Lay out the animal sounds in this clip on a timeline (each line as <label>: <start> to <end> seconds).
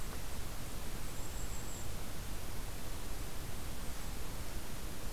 Golden-crowned Kinglet (Regulus satrapa): 0.8 to 2.0 seconds